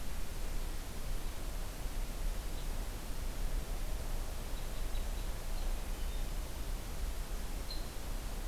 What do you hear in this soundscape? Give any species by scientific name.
Loxia curvirostra, Catharus guttatus